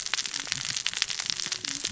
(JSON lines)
{"label": "biophony, cascading saw", "recorder": "SoundTrap 600 or HydroMoth"}